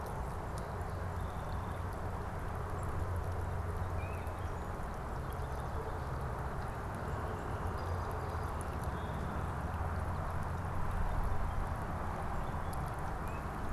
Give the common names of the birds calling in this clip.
Song Sparrow, Tufted Titmouse